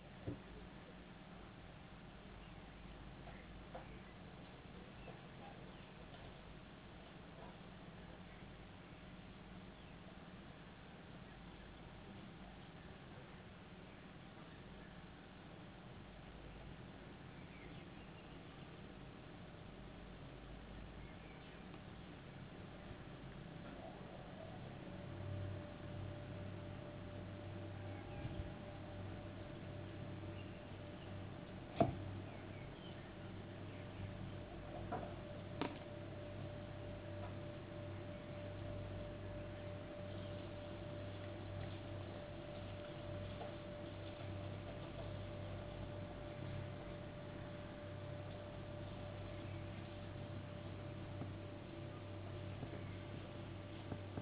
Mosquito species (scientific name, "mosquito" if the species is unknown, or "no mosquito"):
no mosquito